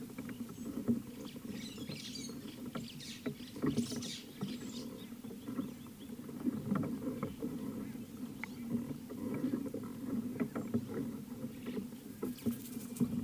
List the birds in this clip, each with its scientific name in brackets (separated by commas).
White-headed Buffalo-Weaver (Dinemellia dinemelli)